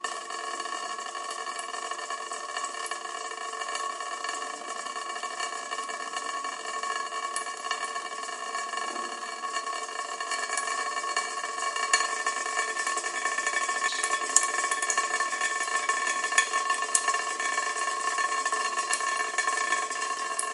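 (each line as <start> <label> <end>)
0.0 Water quickly dripping down a thin surface. 20.5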